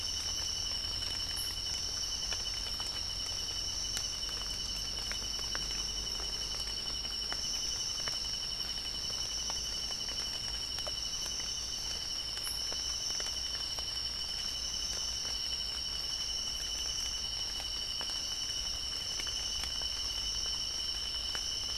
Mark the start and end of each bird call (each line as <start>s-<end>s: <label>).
1.3s-1.8s: White-eared Ground-Sparrow (Melozone leucotis)